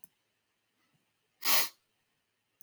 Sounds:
Sniff